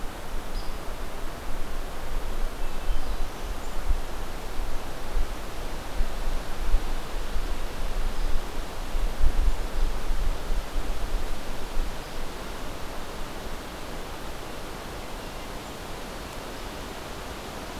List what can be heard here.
Hairy Woodpecker, Black-throated Blue Warbler